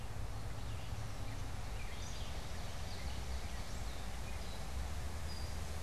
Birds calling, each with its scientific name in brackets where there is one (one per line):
Ovenbird (Seiurus aurocapilla)
Red-eyed Vireo (Vireo olivaceus)
Gray Catbird (Dumetella carolinensis)